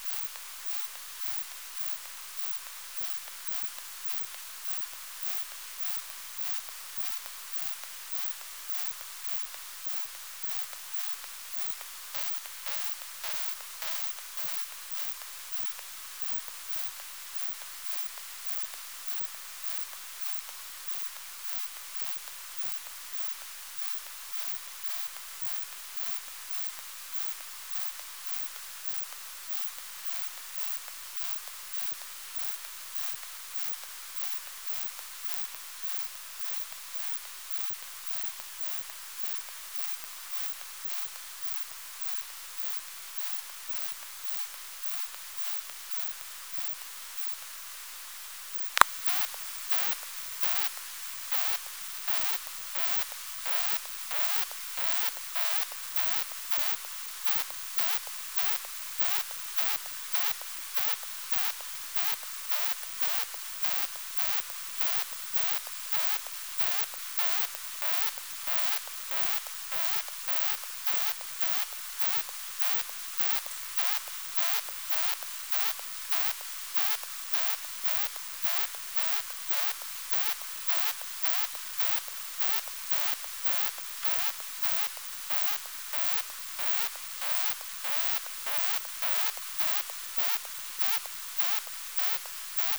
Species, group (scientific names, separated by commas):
Isophya kraussii, Orthoptera